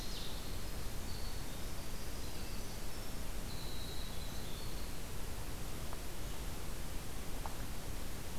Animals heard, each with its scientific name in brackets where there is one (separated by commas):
Ovenbird (Seiurus aurocapilla), Winter Wren (Troglodytes hiemalis)